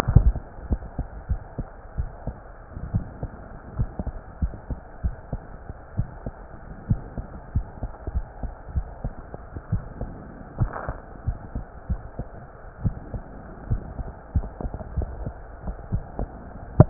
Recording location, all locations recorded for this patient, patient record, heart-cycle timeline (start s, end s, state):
aortic valve (AV)
aortic valve (AV)+pulmonary valve (PV)+tricuspid valve (TV)+mitral valve (MV)
#Age: Child
#Sex: Male
#Height: 124.0 cm
#Weight: 29.6 kg
#Pregnancy status: False
#Murmur: Absent
#Murmur locations: nan
#Most audible location: nan
#Systolic murmur timing: nan
#Systolic murmur shape: nan
#Systolic murmur grading: nan
#Systolic murmur pitch: nan
#Systolic murmur quality: nan
#Diastolic murmur timing: nan
#Diastolic murmur shape: nan
#Diastolic murmur grading: nan
#Diastolic murmur pitch: nan
#Diastolic murmur quality: nan
#Outcome: Normal
#Campaign: 2015 screening campaign
0.00	0.58	unannotated
0.58	0.67	diastole
0.67	0.80	S1
0.80	0.95	systole
0.95	1.08	S2
1.08	1.27	diastole
1.27	1.40	S1
1.40	1.56	systole
1.56	1.68	S2
1.68	1.96	diastole
1.96	2.12	S1
2.12	2.26	systole
2.26	2.36	S2
2.36	2.92	diastole
2.92	3.04	S1
3.04	3.20	systole
3.20	3.32	S2
3.32	3.76	diastole
3.76	3.90	S1
3.90	4.05	systole
4.05	4.16	S2
4.16	4.39	diastole
4.39	4.54	S1
4.54	4.66	systole
4.66	4.80	S2
4.80	5.01	diastole
5.01	5.16	S1
5.16	5.30	systole
5.30	5.40	S2
5.40	5.96	diastole
5.96	6.07	S1
6.07	6.24	systole
6.24	6.33	S2
6.33	6.88	diastole
6.88	7.02	S1
7.02	7.15	systole
7.15	7.28	S2
7.28	7.53	diastole
7.53	7.66	S1
7.66	7.80	systole
7.80	7.90	S2
7.90	8.12	diastole
8.12	8.26	S1
8.26	8.40	systole
8.40	8.50	S2
8.50	8.74	diastole
8.74	8.88	S1
8.88	9.02	systole
9.02	9.12	S2
9.12	9.70	diastole
9.70	9.82	S1
9.82	9.99	systole
9.99	10.12	S2
10.12	10.56	diastole
10.56	10.70	S1
10.70	10.86	systole
10.86	10.98	S2
10.98	11.24	diastole
11.24	11.40	S1
11.40	11.52	systole
11.52	11.66	S2
11.66	11.86	diastole
11.86	12.02	S1
12.02	12.16	systole
12.16	12.28	S2
12.28	12.81	diastole
12.81	12.94	S1
12.94	13.12	systole
13.12	13.22	S2
13.22	13.67	diastole
13.67	13.84	S1
13.84	13.95	systole
13.95	14.08	S2
14.08	14.33	diastole
14.33	14.48	S1
14.48	14.62	systole
14.62	14.72	S2
14.72	14.94	diastole
14.94	15.10	S1
15.10	15.22	systole
15.22	15.34	S2
15.34	15.90	diastole
15.90	16.06	S1
16.06	16.19	systole
16.19	16.27	S2
16.27	16.36	diastole
16.36	16.90	unannotated